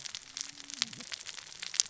{"label": "biophony, cascading saw", "recorder": "SoundTrap 600 or HydroMoth"}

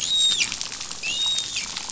{"label": "biophony, dolphin", "recorder": "SoundTrap 500"}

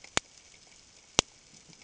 {"label": "ambient", "recorder": "HydroMoth"}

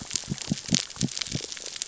{"label": "biophony", "recorder": "SoundTrap 600 or HydroMoth"}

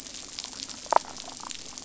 {"label": "biophony, damselfish", "recorder": "SoundTrap 500"}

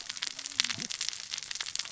{"label": "biophony, cascading saw", "recorder": "SoundTrap 600 or HydroMoth"}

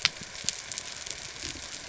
{"label": "biophony", "recorder": "SoundTrap 300"}
{"label": "anthrophony, boat engine", "recorder": "SoundTrap 300"}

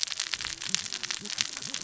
{"label": "biophony, cascading saw", "recorder": "SoundTrap 600 or HydroMoth"}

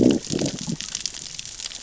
{"label": "biophony, growl", "recorder": "SoundTrap 600 or HydroMoth"}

